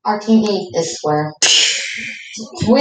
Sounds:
Sneeze